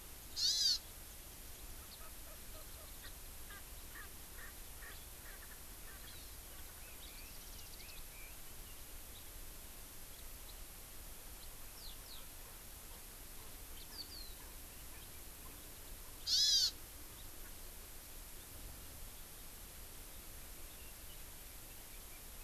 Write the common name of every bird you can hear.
Hawaii Amakihi, Erckel's Francolin, Red-billed Leiothrix